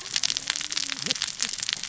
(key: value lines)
label: biophony, cascading saw
recorder: SoundTrap 600 or HydroMoth